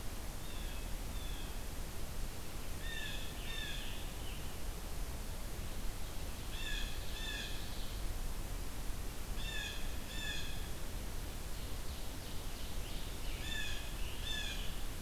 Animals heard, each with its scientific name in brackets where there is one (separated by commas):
Blue Jay (Cyanocitta cristata), Ovenbird (Seiurus aurocapilla), Scarlet Tanager (Piranga olivacea)